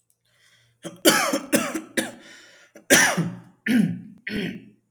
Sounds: Throat clearing